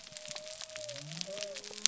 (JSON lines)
{"label": "biophony", "recorder": "SoundTrap 300"}